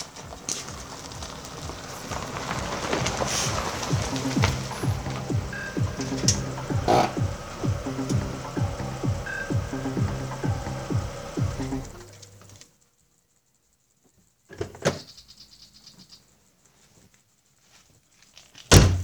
Does something open and shut?
yes